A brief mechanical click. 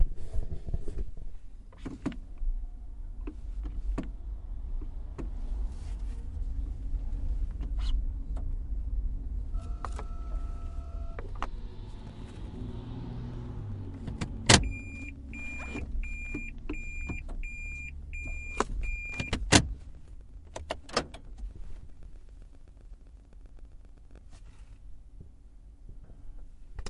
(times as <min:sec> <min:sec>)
0:20.4 0:21.5